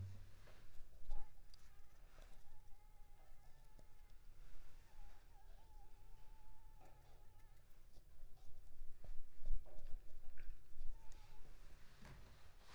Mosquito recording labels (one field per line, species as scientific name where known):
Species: Culex pipiens complex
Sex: female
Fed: unfed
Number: one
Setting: cup